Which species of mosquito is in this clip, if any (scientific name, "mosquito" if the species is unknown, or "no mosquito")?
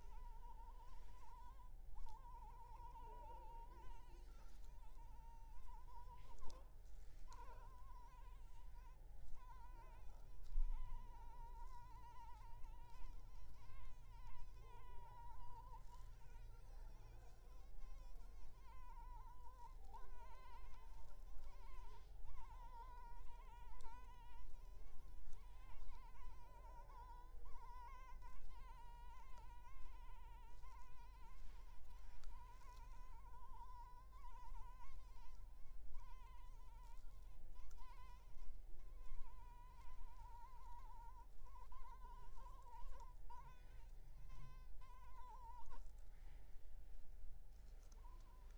Anopheles maculipalpis